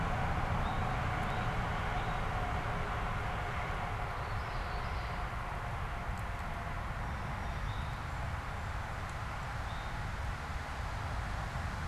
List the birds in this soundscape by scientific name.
Pipilo erythrophthalmus, Geothlypis trichas